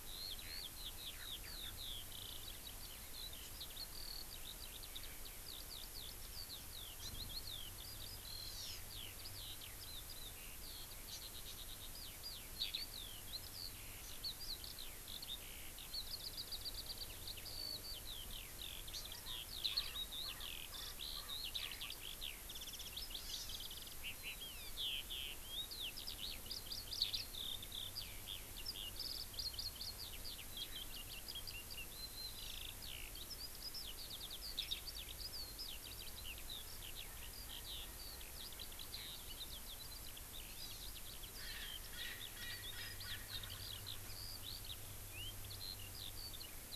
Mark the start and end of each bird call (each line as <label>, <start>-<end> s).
Eurasian Skylark (Alauda arvensis), 0.0-46.8 s
Hawaii Amakihi (Chlorodrepanis virens), 7.0-7.1 s
Hawaii Amakihi (Chlorodrepanis virens), 11.0-11.2 s
Hawaii Amakihi (Chlorodrepanis virens), 18.9-19.0 s
Hawaii Amakihi (Chlorodrepanis virens), 23.1-23.5 s
Erckel's Francolin (Pternistis erckelii), 41.4-44.0 s